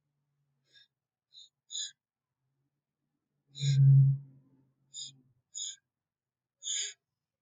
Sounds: Sniff